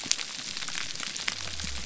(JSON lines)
{"label": "biophony", "recorder": "SoundTrap 300"}